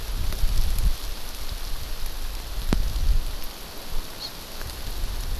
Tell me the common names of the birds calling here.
Hawaii Amakihi